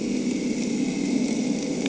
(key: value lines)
label: anthrophony, boat engine
recorder: HydroMoth